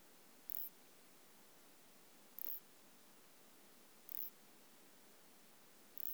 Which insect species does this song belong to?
Isophya clara